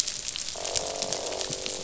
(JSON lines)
{"label": "biophony, croak", "recorder": "SoundTrap 500"}